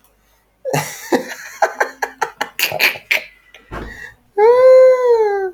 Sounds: Laughter